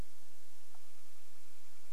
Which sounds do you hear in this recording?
Northern Flicker call